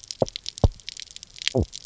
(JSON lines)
{"label": "biophony", "recorder": "SoundTrap 300"}